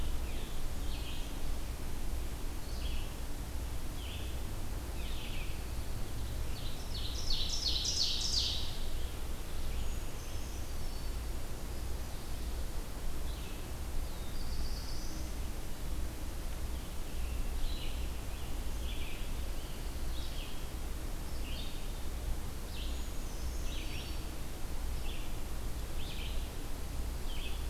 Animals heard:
Black-throated Blue Warbler (Setophaga caerulescens), Brown Creeper (Certhia americana), Scarlet Tanager (Piranga olivacea), Ovenbird (Seiurus aurocapilla), Red-eyed Vireo (Vireo olivaceus)

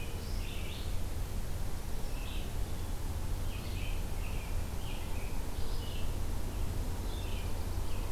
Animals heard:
Red-eyed Vireo (Vireo olivaceus), American Robin (Turdus migratorius), Nashville Warbler (Leiothlypis ruficapilla)

